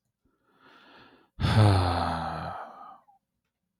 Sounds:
Sigh